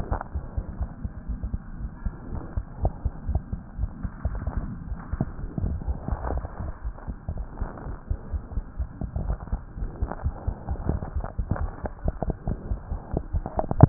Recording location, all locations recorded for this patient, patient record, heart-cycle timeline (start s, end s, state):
tricuspid valve (TV)
aortic valve (AV)+pulmonary valve (PV)+tricuspid valve (TV)+mitral valve (MV)
#Age: Child
#Sex: Male
#Height: 97.0 cm
#Weight: 17.0 kg
#Pregnancy status: False
#Murmur: Absent
#Murmur locations: nan
#Most audible location: nan
#Systolic murmur timing: nan
#Systolic murmur shape: nan
#Systolic murmur grading: nan
#Systolic murmur pitch: nan
#Systolic murmur quality: nan
#Diastolic murmur timing: nan
#Diastolic murmur shape: nan
#Diastolic murmur grading: nan
#Diastolic murmur pitch: nan
#Diastolic murmur quality: nan
#Outcome: Abnormal
#Campaign: 2015 screening campaign
0.00	9.24	unannotated
9.24	9.38	S1
9.38	9.52	systole
9.52	9.62	S2
9.62	9.80	diastole
9.80	9.92	S1
9.92	10.00	systole
10.00	10.10	S2
10.10	10.22	diastole
10.22	10.34	S1
10.34	10.46	systole
10.46	10.54	S2
10.54	10.67	diastole
10.67	10.77	S1
10.77	10.88	systole
10.88	11.00	S2
11.00	11.14	diastole
11.14	11.23	S1
11.23	11.36	systole
11.36	11.45	S2
11.45	11.58	diastole
11.58	11.70	S1
11.70	11.81	systole
11.81	11.90	S2
11.90	12.03	diastole
12.03	12.12	S1
12.12	12.25	systole
12.25	12.34	S2
12.34	13.89	unannotated